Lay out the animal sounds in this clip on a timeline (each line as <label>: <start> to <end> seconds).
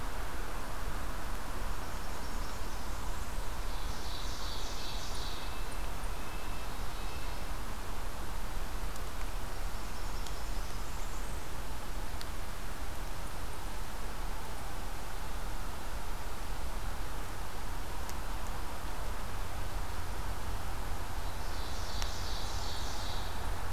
Blackburnian Warbler (Setophaga fusca): 1.4 to 3.6 seconds
Ovenbird (Seiurus aurocapilla): 3.5 to 5.8 seconds
Red-breasted Nuthatch (Sitta canadensis): 4.7 to 7.5 seconds
Blackburnian Warbler (Setophaga fusca): 9.2 to 11.7 seconds
Ovenbird (Seiurus aurocapilla): 21.0 to 23.7 seconds